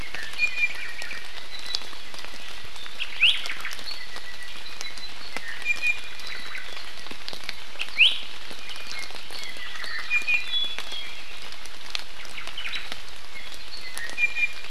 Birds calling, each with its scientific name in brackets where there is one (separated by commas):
Apapane (Himatione sanguinea), Omao (Myadestes obscurus), Iiwi (Drepanis coccinea)